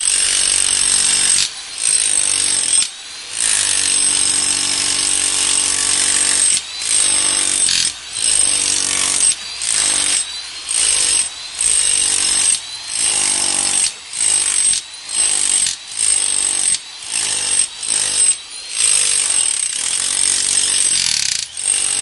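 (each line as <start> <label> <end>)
0.0 A jackhammer pounds against the ground. 22.0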